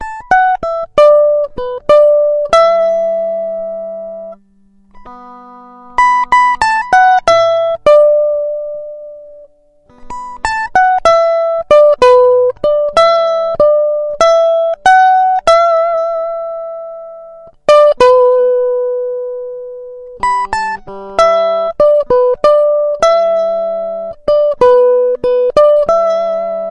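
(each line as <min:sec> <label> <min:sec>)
0:00.0 An electric guitar plays a melody with five string pulls. 0:04.4
0:05.1 An electric guitar string is plucked seven times. 0:09.6
0:10.0 Electric guitar strings are plucked twelve times. 0:17.6
0:17.6 An electric guitar string is plucked 14 times. 0:26.7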